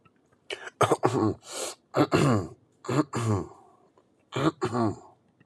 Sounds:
Throat clearing